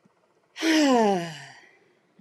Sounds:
Sigh